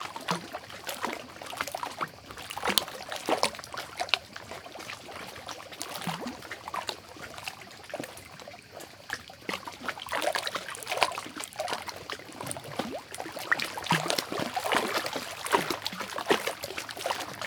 What is the person walking in?
water